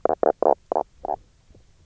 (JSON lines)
{"label": "biophony, knock croak", "recorder": "SoundTrap 300"}